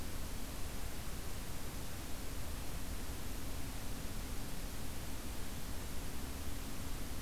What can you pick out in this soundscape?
forest ambience